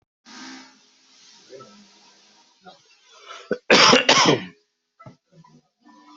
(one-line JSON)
{"expert_labels": [{"quality": "good", "cough_type": "wet", "dyspnea": false, "wheezing": false, "stridor": false, "choking": false, "congestion": false, "nothing": true, "diagnosis": "healthy cough", "severity": "pseudocough/healthy cough"}], "age": 28, "gender": "male", "respiratory_condition": false, "fever_muscle_pain": false, "status": "symptomatic"}